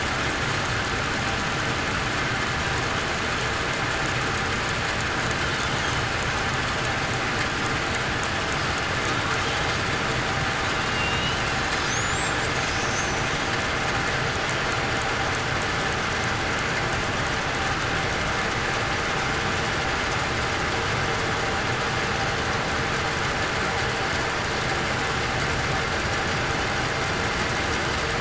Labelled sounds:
10.9	11.4	killer whale, southern resident, 2.7 to 3.1 kHz
11.9	12.3	killer whale, southern resident, 6.1 to 7.8 kHz

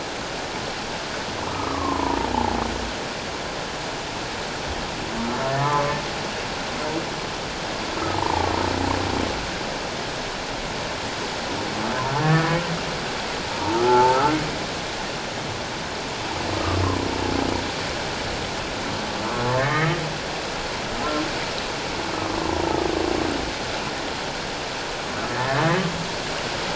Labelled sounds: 1.4	2.3	humpback whale, 0.84 to 1.3 kHz
5.6	5.9	humpback whale, 1.1 to 1.3 kHz
8.1	8.5	humpback whale, 0.78 to 1.1 kHz
13.5	14.2	humpback whale, 0.81 to 1.4 kHz
19.6	20.0	humpback whale, 1.6 to 2.3 kHz
22.1	22.4	humpback whale, 1.1 to 1.3 kHz
25.3	25.6	humpback whale, 1.6 to 1.9 kHz

